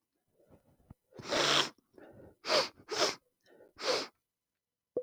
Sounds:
Sniff